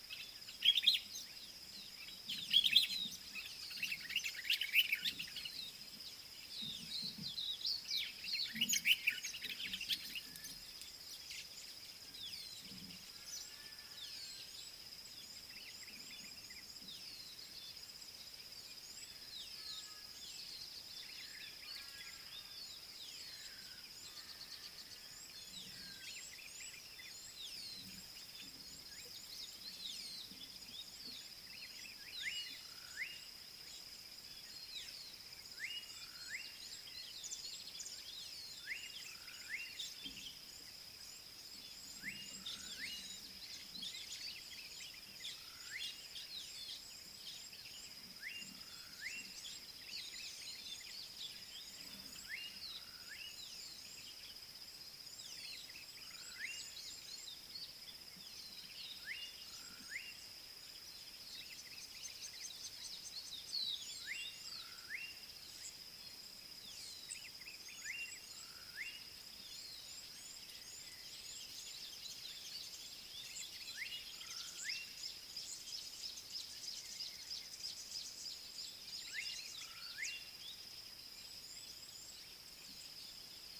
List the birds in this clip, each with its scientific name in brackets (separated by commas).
Red-cheeked Cordonbleu (Uraeginthus bengalus), Rufous Chatterer (Argya rubiginosa), Slate-colored Boubou (Laniarius funebris), Pale White-eye (Zosterops flavilateralis), Common Bulbul (Pycnonotus barbatus)